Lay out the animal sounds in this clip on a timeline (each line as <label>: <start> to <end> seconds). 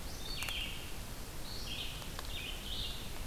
Red-eyed Vireo (Vireo olivaceus): 0.0 to 3.3 seconds